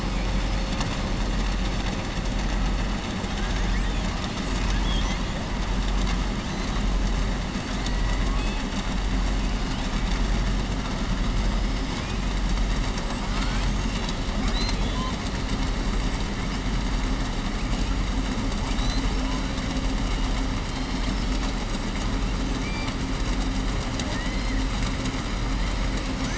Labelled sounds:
4.3	5.2	killer whale, southern resident, 1.1 to 7.9 kHz
8.0	8.6	killer whale, southern resident, 1.0 to 4.4 kHz
20.6	21.5	killer whale, southern resident, 3.2 to 5.8 kHz

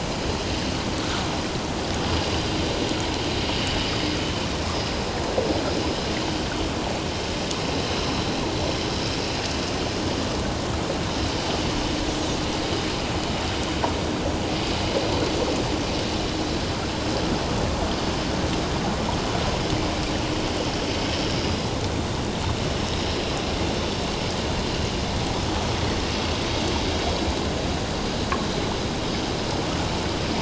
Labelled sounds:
3.9	4.1	vessel noise, 4.9 to 5.2 kHz

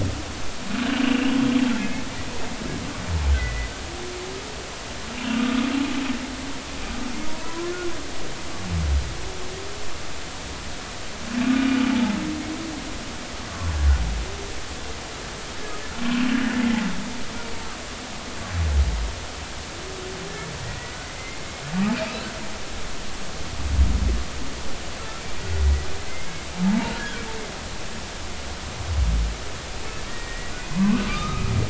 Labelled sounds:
1.0	2.0	humpback whale, 2.0 to 2.9 kHz
3.4	3.7	humpback whale, 1.9 to 2.1 kHz
5.2	5.7	humpback whale, 1.2 to 2.8 kHz
7.4	7.7	humpback whale, 0.93 to 1.1 kHz
16.6	16.9	humpback whale, 1.9 to 2.2 kHz
21.0	21.4	humpback whale, 2.0 to 2.2 kHz
21.9	22.3	humpback whale, 2.3 to 2.8 kHz
26.1	26.5	humpback whale, 2.0 to 2.2 kHz
30.1	31.4	humpback whale, 0.90 to 2.0 kHz

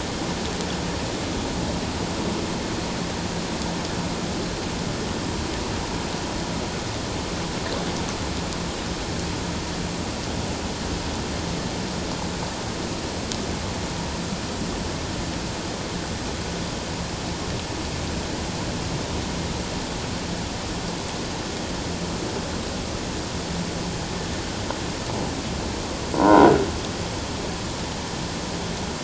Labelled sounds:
26.1	26.5	croaking sound likely from a nearby submerged object, 0.78 to 1.6 kHz

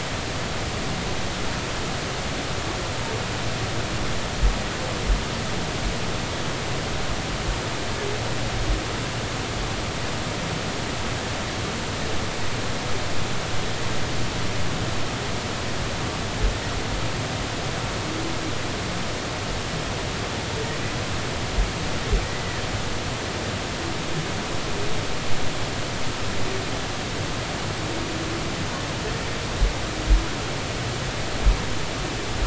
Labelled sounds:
22.2	22.6	humpback whale, 1.9 to 2.0 kHz

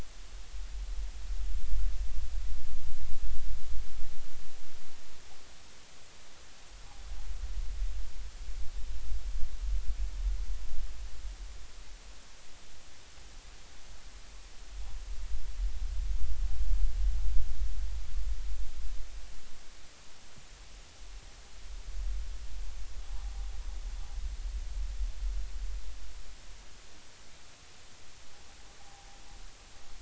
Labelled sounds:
28.8	29.1	noise likely from the mooring, 0.80 to 0.86 kHz

